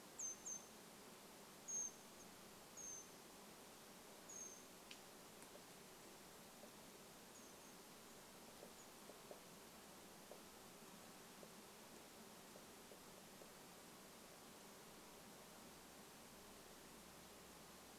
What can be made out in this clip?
Brown Creeper call, woodpecker drumming